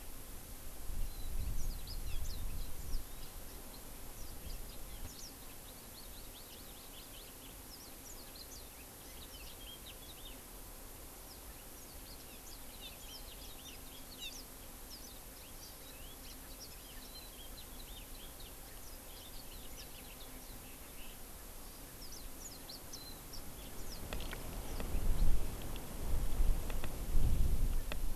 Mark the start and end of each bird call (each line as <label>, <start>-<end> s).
Warbling White-eye (Zosterops japonicus), 0.9-1.3 s
Yellow-fronted Canary (Crithagra mozambica), 1.5-2.2 s
Warbling White-eye (Zosterops japonicus), 2.1-3.1 s
Warbling White-eye (Zosterops japonicus), 5.0-5.3 s
Hawaii Amakihi (Chlorodrepanis virens), 5.5-7.6 s
Red-billed Leiothrix (Leiothrix lutea), 6.3-6.7 s
Warbling White-eye (Zosterops japonicus), 7.6-8.7 s
House Finch (Haemorhous mexicanus), 8.9-10.4 s
Yellow-fronted Canary (Crithagra mozambica), 11.2-15.2 s
Warbling White-eye (Zosterops japonicus), 12.4-12.6 s
House Finch (Haemorhous mexicanus), 12.8-14.1 s
Hawaii Amakihi (Chlorodrepanis virens), 15.4-15.8 s
Hawaii Amakihi (Chlorodrepanis virens), 16.1-16.4 s
House Finch (Haemorhous mexicanus), 16.6-21.2 s
Warbling White-eye (Zosterops japonicus), 16.9-17.3 s
Hawaii Amakihi (Chlorodrepanis virens), 21.5-21.9 s
Warbling White-eye (Zosterops japonicus), 21.9-23.4 s
Yellow-fronted Canary (Crithagra mozambica), 23.5-25.2 s